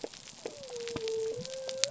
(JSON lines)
{"label": "biophony", "recorder": "SoundTrap 300"}